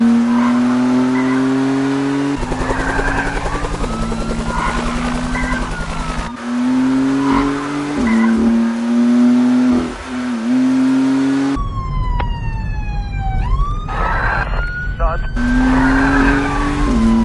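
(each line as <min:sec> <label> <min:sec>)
0:00.0 A car engine revving with gear shifts and tires squealing. 0:11.6
0:02.4 A helicopter is flying overhead. 0:06.4
0:02.4 Sirens sound in the background. 0:07.4
0:11.6 The siren of a police car is sounding. 0:17.2
0:14.2 A man is speaking on a radio. 0:15.4
0:15.4 A car engine revving with gear shifts and tires squealing. 0:17.2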